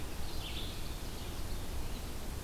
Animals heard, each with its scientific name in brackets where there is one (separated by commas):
Red-eyed Vireo (Vireo olivaceus), Ovenbird (Seiurus aurocapilla)